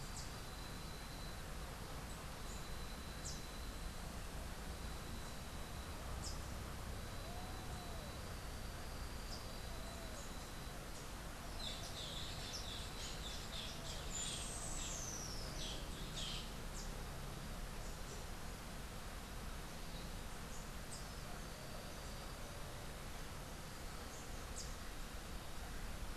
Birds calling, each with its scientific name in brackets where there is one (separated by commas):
Rufous-tailed Hummingbird (Amazilia tzacatl), Boat-billed Flycatcher (Megarynchus pitangua)